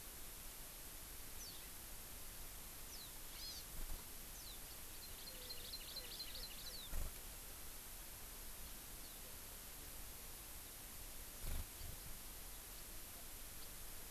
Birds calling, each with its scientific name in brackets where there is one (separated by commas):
House Finch (Haemorhous mexicanus), Hawaii Amakihi (Chlorodrepanis virens)